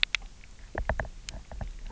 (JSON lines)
{"label": "biophony, knock", "recorder": "SoundTrap 300"}